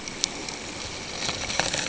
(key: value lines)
label: ambient
recorder: HydroMoth